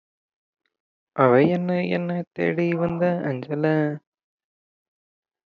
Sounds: Sigh